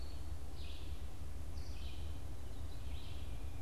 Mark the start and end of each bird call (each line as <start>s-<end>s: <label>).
0.0s-0.6s: Eastern Wood-Pewee (Contopus virens)
0.0s-3.6s: Red-eyed Vireo (Vireo olivaceus)